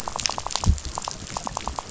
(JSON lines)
{"label": "biophony, rattle", "recorder": "SoundTrap 500"}